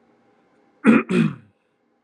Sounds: Throat clearing